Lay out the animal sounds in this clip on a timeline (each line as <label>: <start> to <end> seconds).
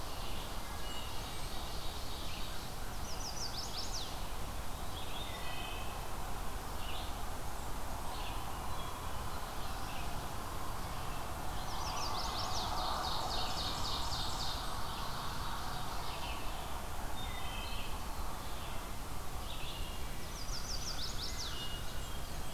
Ovenbird (Seiurus aurocapilla): 0.0 to 3.0 seconds
Red-eyed Vireo (Vireo olivaceus): 0.0 to 22.5 seconds
Wood Thrush (Hylocichla mustelina): 0.5 to 1.3 seconds
Blackburnian Warbler (Setophaga fusca): 0.5 to 1.7 seconds
Chestnut-sided Warbler (Setophaga pensylvanica): 3.0 to 4.2 seconds
Wood Thrush (Hylocichla mustelina): 5.0 to 6.1 seconds
Blackburnian Warbler (Setophaga fusca): 7.1 to 8.2 seconds
Wood Thrush (Hylocichla mustelina): 8.5 to 9.4 seconds
Chestnut-sided Warbler (Setophaga pensylvanica): 11.5 to 12.8 seconds
Ovenbird (Seiurus aurocapilla): 12.5 to 16.7 seconds
Blackburnian Warbler (Setophaga fusca): 13.4 to 14.9 seconds
Wood Thrush (Hylocichla mustelina): 17.1 to 18.1 seconds
Wood Thrush (Hylocichla mustelina): 19.4 to 20.2 seconds
Chestnut-sided Warbler (Setophaga pensylvanica): 20.3 to 21.8 seconds
Wood Thrush (Hylocichla mustelina): 21.2 to 22.2 seconds
Blackburnian Warbler (Setophaga fusca): 21.6 to 22.5 seconds